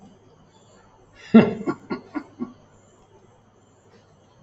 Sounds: Laughter